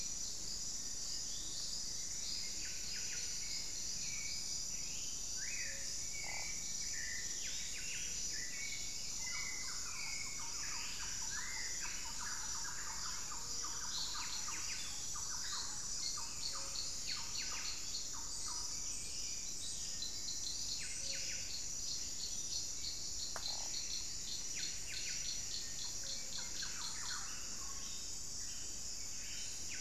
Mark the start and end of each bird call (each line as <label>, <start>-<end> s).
Black-billed Thrush (Turdus ignobilis), 0.0-16.8 s
Buff-throated Saltator (Saltator maximus), 0.0-29.8 s
Plain-winged Antshrike (Thamnophilus schistaceus), 0.3-2.5 s
Plumbeous Antbird (Myrmelastes hyperythrus), 1.9-4.3 s
Buff-breasted Wren (Cantorchilus leucotis), 1.9-29.8 s
Thrush-like Wren (Campylorhynchus turdinus), 9.1-16.2 s
Thrush-like Wren (Campylorhynchus turdinus), 17.9-18.7 s
Thrush-like Wren (Campylorhynchus turdinus), 26.3-27.5 s
unidentified bird, 27.6-28.2 s